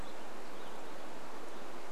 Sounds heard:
unidentified sound

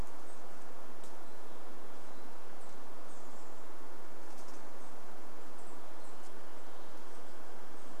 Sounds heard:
Chestnut-backed Chickadee call
Douglas squirrel rattle

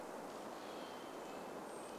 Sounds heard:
Red-breasted Nuthatch song
Brown Creeper call
Hermit Thrush song
tree creak

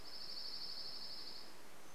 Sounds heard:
Dark-eyed Junco song

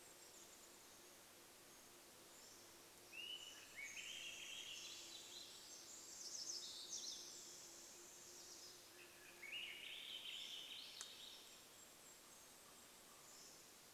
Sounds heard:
insect buzz
Golden-crowned Kinglet call
Pacific Wren song
Swainson's Thrush song
Swainson's Thrush call
warbler song
Golden-crowned Kinglet song

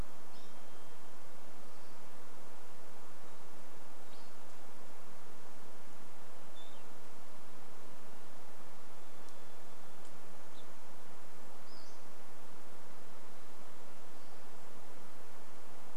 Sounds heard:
unidentified sound
Pacific-slope Flycatcher call
Varied Thrush song

